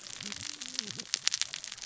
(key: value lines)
label: biophony, cascading saw
recorder: SoundTrap 600 or HydroMoth